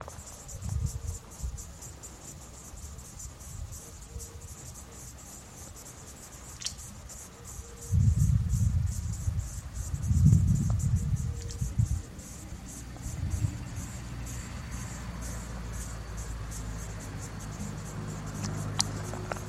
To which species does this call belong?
Tettigettalna mariae